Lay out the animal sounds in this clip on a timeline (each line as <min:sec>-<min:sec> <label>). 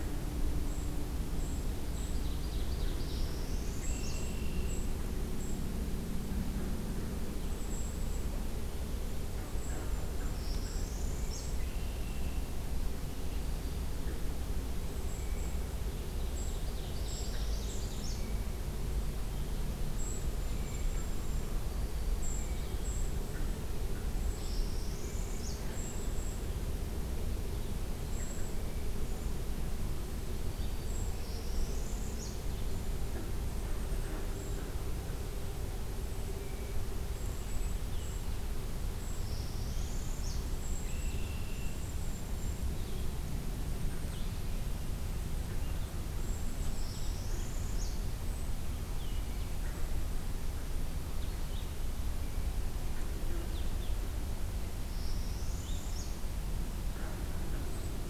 0:00.7-0:02.2 Golden-crowned Kinglet (Regulus satrapa)
0:01.8-0:03.3 Ovenbird (Seiurus aurocapilla)
0:02.9-0:04.4 Northern Parula (Setophaga americana)
0:03.7-0:05.1 Red-winged Blackbird (Agelaius phoeniceus)
0:03.8-0:05.6 Golden-crowned Kinglet (Regulus satrapa)
0:07.5-0:08.3 Golden-crowned Kinglet (Regulus satrapa)
0:09.5-0:10.0 Golden-crowned Kinglet (Regulus satrapa)
0:10.1-0:11.8 Northern Parula (Setophaga americana)
0:11.4-0:12.8 Red-winged Blackbird (Agelaius phoeniceus)
0:14.8-0:15.7 Golden-crowned Kinglet (Regulus satrapa)
0:15.9-0:18.2 Ovenbird (Seiurus aurocapilla)
0:16.7-0:18.3 Northern Parula (Setophaga americana)
0:19.9-0:21.5 Golden-crowned Kinglet (Regulus satrapa)
0:22.1-0:23.3 Golden-crowned Kinglet (Regulus satrapa)
0:24.3-0:25.7 Northern Parula (Setophaga americana)
0:25.6-0:26.4 Golden-crowned Kinglet (Regulus satrapa)
0:28.0-0:28.5 Golden-crowned Kinglet (Regulus satrapa)
0:30.9-0:32.5 Northern Parula (Setophaga americana)
0:33.3-0:34.6 Golden-crowned Kinglet (Regulus satrapa)
0:37.0-0:38.4 Golden-crowned Kinglet (Regulus satrapa)
0:39.1-0:40.5 Northern Parula (Setophaga americana)
0:40.4-0:42.8 Golden-crowned Kinglet (Regulus satrapa)
0:40.7-0:41.9 Red-winged Blackbird (Agelaius phoeniceus)
0:44.0-0:53.9 Blue-headed Vireo (Vireo solitarius)
0:46.2-0:47.1 Golden-crowned Kinglet (Regulus satrapa)
0:46.6-0:48.2 Northern Parula (Setophaga americana)
0:54.8-0:56.2 Northern Parula (Setophaga americana)